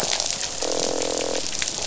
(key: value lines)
label: biophony, croak
recorder: SoundTrap 500